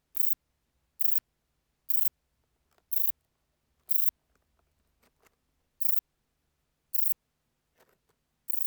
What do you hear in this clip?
Rhacocleis poneli, an orthopteran